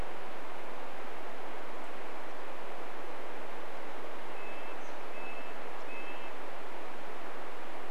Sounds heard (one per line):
unidentified bird chip note
Red-breasted Nuthatch song